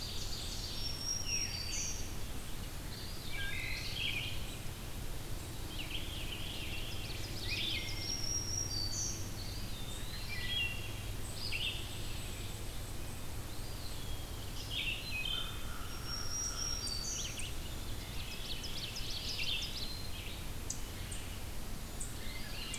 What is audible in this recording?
Ovenbird, Red-eyed Vireo, Black-throated Green Warbler, Eastern Wood-Pewee, Wood Thrush, American Crow